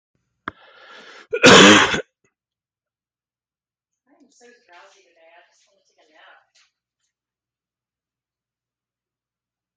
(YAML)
expert_labels:
- quality: good
  cough_type: wet
  dyspnea: false
  wheezing: false
  stridor: false
  choking: false
  congestion: false
  nothing: true
  diagnosis: healthy cough
  severity: pseudocough/healthy cough
age: 53
gender: male
respiratory_condition: false
fever_muscle_pain: false
status: COVID-19